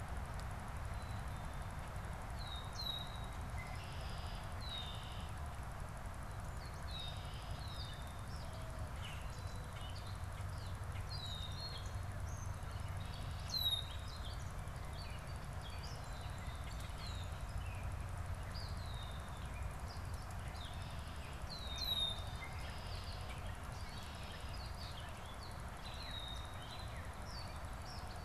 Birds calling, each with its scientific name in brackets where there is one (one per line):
Gray Catbird (Dumetella carolinensis)
Black-capped Chickadee (Poecile atricapillus)
Red-winged Blackbird (Agelaius phoeniceus)